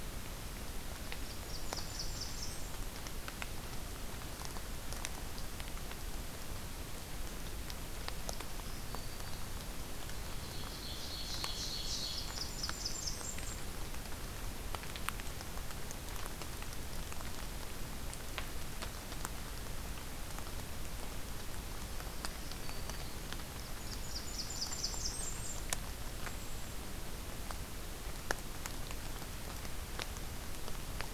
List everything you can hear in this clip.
Blackburnian Warbler, Black-throated Green Warbler, Ovenbird, Golden-crowned Kinglet